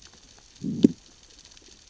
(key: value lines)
label: biophony, growl
recorder: SoundTrap 600 or HydroMoth